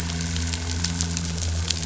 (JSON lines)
{"label": "anthrophony, boat engine", "recorder": "SoundTrap 500"}